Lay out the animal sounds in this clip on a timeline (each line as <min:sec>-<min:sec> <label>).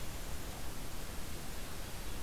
0:01.6-0:02.2 Red-breasted Nuthatch (Sitta canadensis)